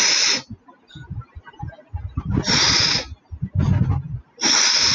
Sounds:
Sniff